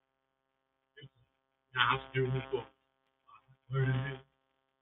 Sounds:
Sigh